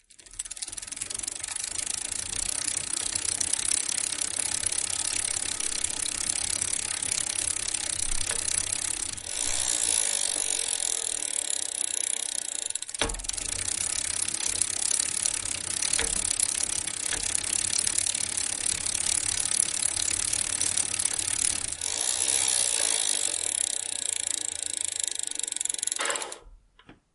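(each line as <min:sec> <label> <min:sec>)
0:00.0 A bicycle chain is rattling continuously. 0:27.1
0:00.0 Repeated metallic sounds with pauses and thumping in the background. 0:27.1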